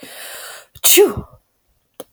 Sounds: Sneeze